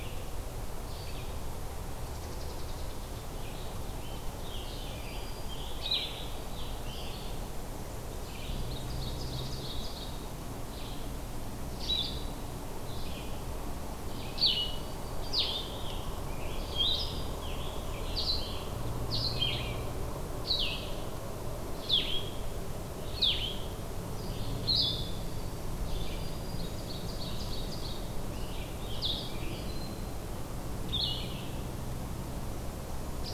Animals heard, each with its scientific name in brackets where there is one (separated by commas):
unidentified call, Ovenbird (Seiurus aurocapilla), Black-throated Green Warbler (Setophaga virens), Blue-headed Vireo (Vireo solitarius), Scarlet Tanager (Piranga olivacea), Red-eyed Vireo (Vireo olivaceus)